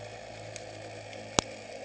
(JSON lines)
{"label": "anthrophony, boat engine", "recorder": "HydroMoth"}